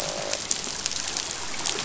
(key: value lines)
label: biophony, croak
recorder: SoundTrap 500